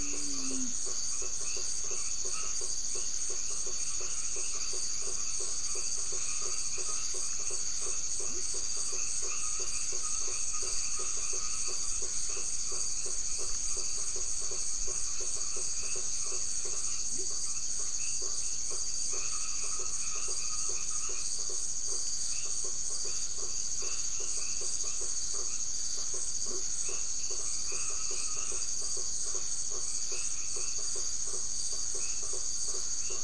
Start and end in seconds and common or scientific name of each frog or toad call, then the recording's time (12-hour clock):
0.0	33.2	white-edged tree frog
0.0	33.2	blacksmith tree frog
8.2	8.5	Leptodactylus latrans
17.1	17.3	Leptodactylus latrans
26.4	26.7	Leptodactylus latrans
9:30pm